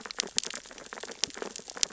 {"label": "biophony, sea urchins (Echinidae)", "recorder": "SoundTrap 600 or HydroMoth"}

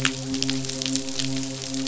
{"label": "biophony, midshipman", "recorder": "SoundTrap 500"}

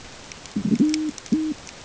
{"label": "ambient", "recorder": "HydroMoth"}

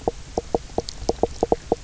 {"label": "biophony, knock croak", "recorder": "SoundTrap 300"}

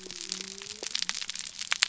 {"label": "biophony", "recorder": "SoundTrap 300"}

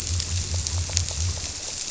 {"label": "biophony", "recorder": "SoundTrap 300"}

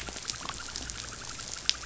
{"label": "anthrophony, boat engine", "recorder": "SoundTrap 500"}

